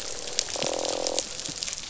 {"label": "biophony, croak", "recorder": "SoundTrap 500"}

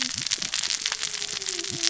{"label": "biophony, cascading saw", "recorder": "SoundTrap 600 or HydroMoth"}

